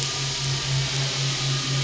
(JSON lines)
{"label": "anthrophony, boat engine", "recorder": "SoundTrap 500"}